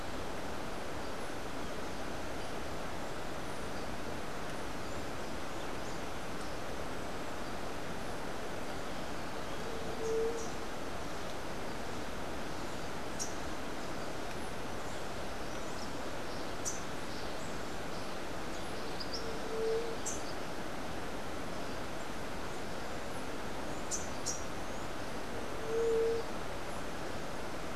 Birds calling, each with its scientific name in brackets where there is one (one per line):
Rufous-capped Warbler (Basileuterus rufifrons)